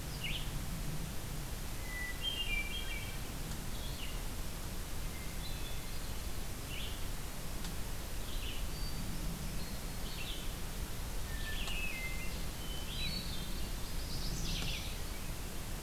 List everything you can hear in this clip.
Red-eyed Vireo, Hermit Thrush, Chestnut-sided Warbler